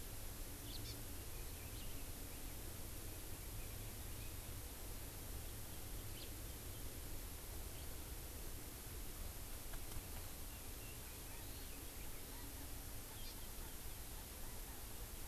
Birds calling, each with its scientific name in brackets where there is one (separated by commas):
House Finch (Haemorhous mexicanus), Hawaii Amakihi (Chlorodrepanis virens), Chinese Hwamei (Garrulax canorus)